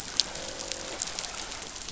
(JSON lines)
{"label": "biophony, croak", "recorder": "SoundTrap 500"}